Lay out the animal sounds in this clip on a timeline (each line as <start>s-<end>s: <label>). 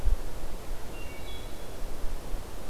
0.7s-2.1s: Wood Thrush (Hylocichla mustelina)